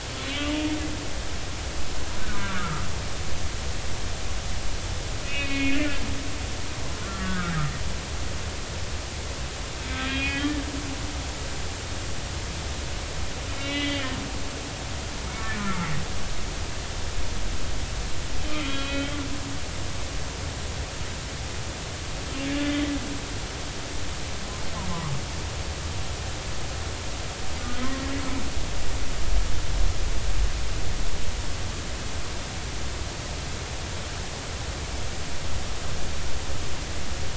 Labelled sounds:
0.2	0.5	humpback whale, 3.3 to 3.5 kHz
2.4	2.8	humpback whale, 1.1 to 1.5 kHz
5.2	6.0	humpback whale, 1.6 to 3.1 kHz
7.0	7.5	humpback whale, 1.2 to 1.8 kHz
9.9	10.6	humpback whale, 1.5 to 3.4 kHz
13.6	14.2	humpback whale, 1.8 to 4.1 kHz
15.6	15.9	humpback whale, 1.2 to 2.2 kHz
18.5	19.2	humpback whale, 1.3 to 3.9 kHz

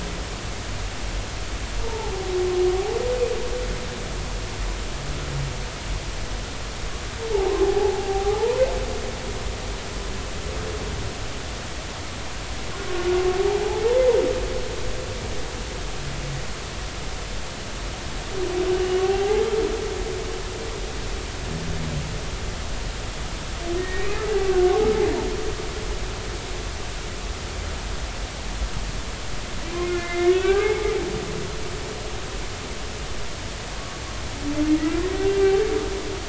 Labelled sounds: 1.8	2.1	humpback whale, 0.80 to 0.96 kHz
7.3	8.6	humpback whale, 0.80 to 1.1 kHz
13.4	13.8	humpback whale, 0.80 to 0.99 kHz
19.0	19.4	humpback whale, 0.80 to 0.90 kHz
23.8	24.1	humpback whale, 1.8 to 2.3 kHz
29.6	30.9	humpback whale, 0.80 to 2.5 kHz
35.3	35.6	humpback whale, 2.7 to 2.8 kHz

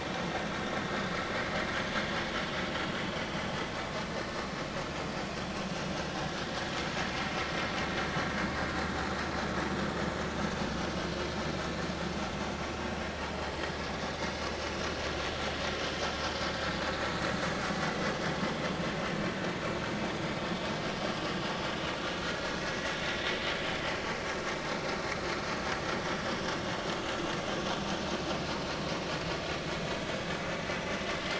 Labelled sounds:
17.8	18.1	vessel noise, 1.9 to 2.1 kHz
28.6	28.9	vessel noise, 4.0 to 4.2 kHz

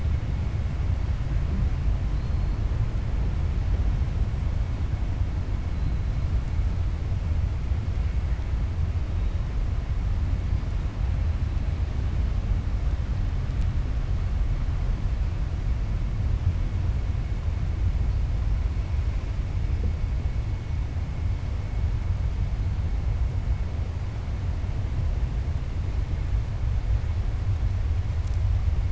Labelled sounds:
2.1	2.5	killer whale, 4.0 to 5.0 kHz

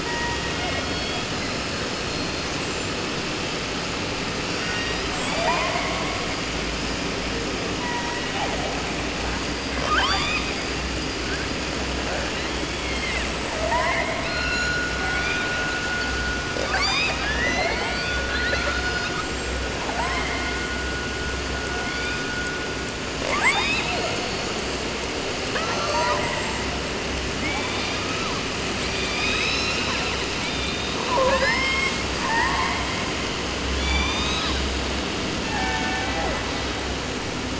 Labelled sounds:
0.0	3.4	killer whale, 0.26 to 8.0 kHz
4.4	6.2	killer whale, 0.43 to 8.0 kHz
7.8	8.7	killer whale, 0.30 to 2.2 kHz
9.3	10.7	killer whale, 0.30 to 8.0 kHz
12.2	13.3	killer whale, southern resident, 0.30 to 4.9 kHz
13.5	15.9	killer whale, 0.25 to 8.0 kHz
16.5	20.7	killer whale, 0.30 to 8.0 kHz
21.7	22.3	killer whale, 0.44 to 8.0 kHz
23.2	24.5	killer whale, southern resident, J pod, call S44, 0.30 to 8.0 kHz
25.3	26.8	killer whale, southern resident, 0.30 to 8.0 kHz
27.4	28.4	killer whale, 0.56 to 6.4 kHz
28.8	32.1	killer whale, southern resident, 0.30 to 8.0 kHz
32.2	32.9	killer whale, 0.30 to 5.2 kHz
33.7	34.8	killer whale, southern resident, J pod, call S01, 0.30 to 8.0 kHz
35.4	36.4	killer whale, 0.38 to 3.3 kHz

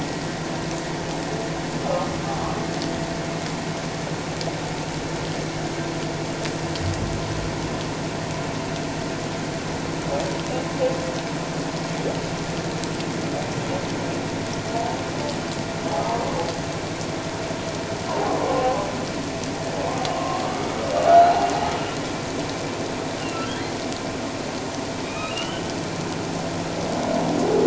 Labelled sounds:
1.8	2.1	humpback whale, 1.2 to 1.3 kHz
18.1	18.4	humpback whale, 0.78 to 1.1 kHz
20.1	21.3	humpback whale, 1.0 to 1.5 kHz
23.2	23.5	humpback whale, 2.6 to 2.9 kHz
25.0	25.7	humpback whale, 1.2 to 3.9 kHz

